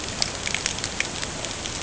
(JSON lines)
{"label": "ambient", "recorder": "HydroMoth"}